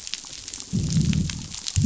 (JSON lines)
{"label": "biophony, growl", "recorder": "SoundTrap 500"}